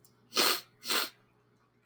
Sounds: Sniff